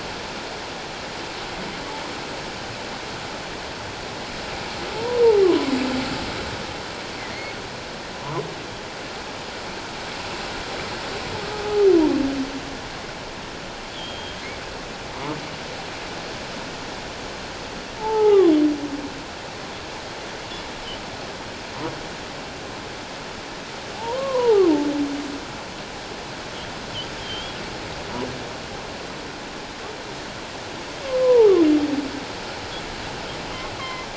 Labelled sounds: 4.9	5.2	humpback whale, 0.84 to 1.0 kHz
7.2	7.5	humpback whale, 1.8 to 2.2 kHz
11.6	11.9	humpback whale, 1.2 to 1.3 kHz
13.9	14.4	humpback whale, 2.9 to 3.5 kHz
18.0	18.5	humpback whale, 0.78 to 2.1 kHz
23.9	24.7	humpback whale, 0.78 to 1.2 kHz
27.2	27.6	humpback whale, 3.0 to 3.4 kHz
31.2	31.5	humpback whale, 0.81 to 1.1 kHz
33.8	34.1	humpback whale, 0.97 to 2.2 kHz

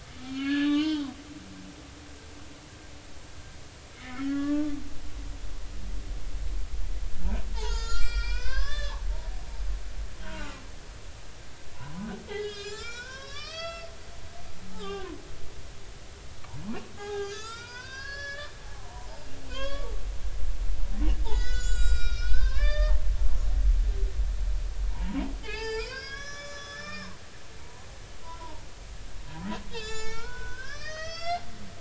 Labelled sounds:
0.2	1.1	humpback whale, 0.83 to 4.1 kHz
4.0	5.3	humpback whale, 1.1 to 2.3 kHz
7.5	9.0	humpback whale, 0.80 to 7.7 kHz
10.2	10.6	humpback whale, 1.1 to 1.6 kHz
11.7	15.2	humpback whale, 0.80 to 7.5 kHz
17.0	19.9	humpback whale, 0.80 to 8.0 kHz
21.2	23.0	humpback whale, 0.99 to 7.9 kHz
24.9	28.7	humpback whale, 0.83 to 7.0 kHz
29.7	31.4	humpback whale, 0.83 to 7.6 kHz

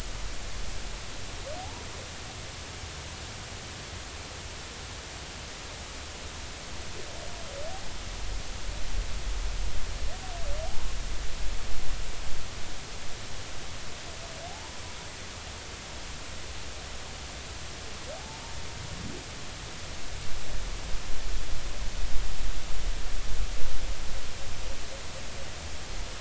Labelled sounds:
1.6	1.8	humpback whale, 0.80 to 1.0 kHz
14.5	14.7	humpback whale, 0.80 to 1.0 kHz
18.2	18.4	humpback whale, 0.80 to 0.93 kHz

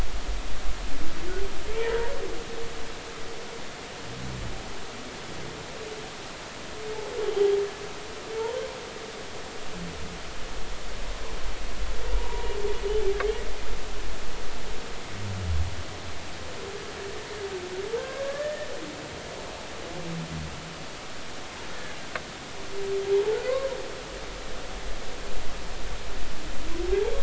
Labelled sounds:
12.2	12.5	humpback whale, 0.86 to 1.0 kHz
18.0	18.7	humpback whale, 0.99 to 1.9 kHz
23.3	23.6	humpback whale, 1.4 to 1.6 kHz

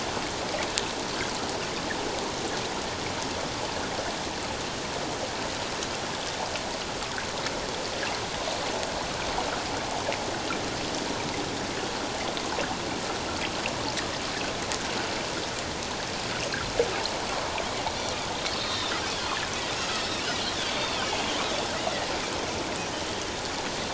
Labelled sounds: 18.5	18.9	Pacific white-sided dolphin, 3.5 to 5.7 kHz
19.8	20.0	Pacific white-sided dolphin, 2.5 to 2.8 kHz
20.7	21.1	Pacific white-sided dolphin, 2.9 to 3.7 kHz

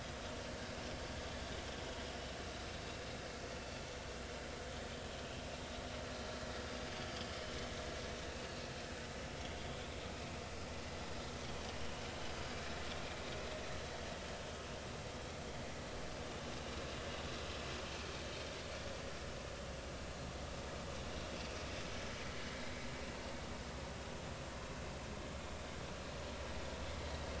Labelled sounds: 10.1	10.4	vessel noise, 2.4 to 2.7 kHz

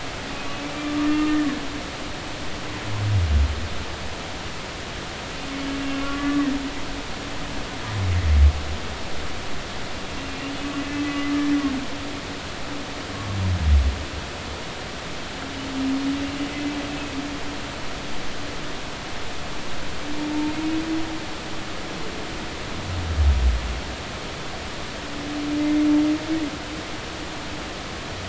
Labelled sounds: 0.3	1.4	humpback whale, 1.1 to 2.6 kHz
5.9	6.4	humpback whale, 1.1 to 1.4 kHz
11.0	11.4	humpback whale, 1.1 to 2.1 kHz

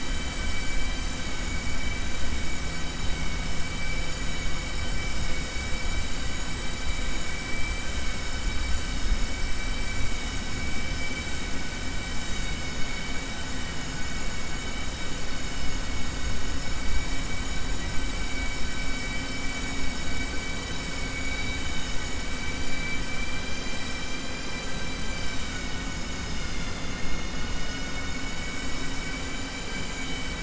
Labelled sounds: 20.9	22.0	vessel noise, 2.2 to 4.7 kHz
29.6	30.4	vessel noise, 1.6 to 4.0 kHz

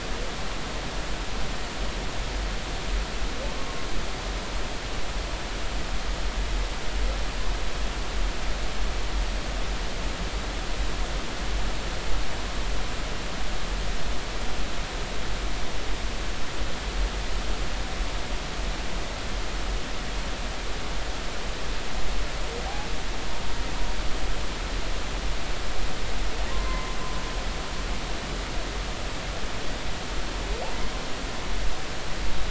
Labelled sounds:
26.5	27.0	humpback whale, 0.96 to 2.1 kHz

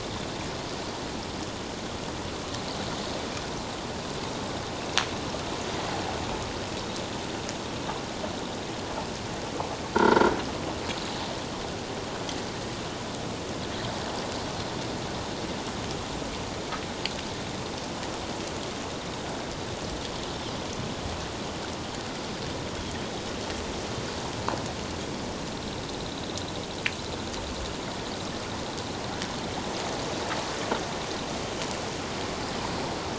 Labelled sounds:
9.9	10.3	croaking sound likely from a nearby submerged object, 0.88 to 4.6 kHz

